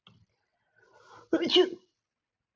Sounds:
Sneeze